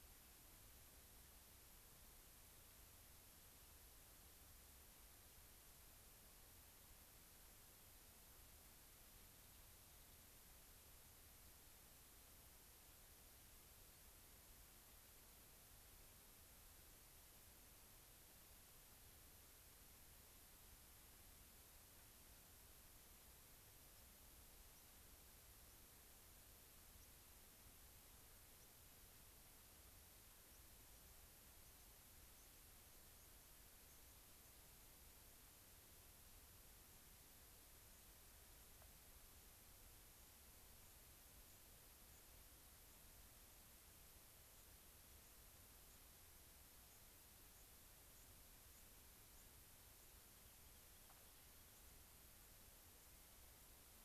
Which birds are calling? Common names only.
White-crowned Sparrow, Rock Wren